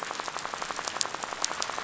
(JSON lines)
{"label": "biophony, rattle", "recorder": "SoundTrap 500"}